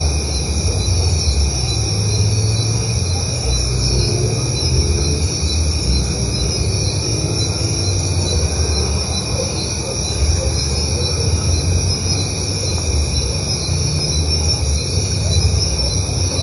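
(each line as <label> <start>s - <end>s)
Multiple crickets stridulating outdoors at night. 0.0s - 16.4s
A dog barks in the distance. 0.5s - 3.7s
A car passes by in the distance. 3.4s - 12.3s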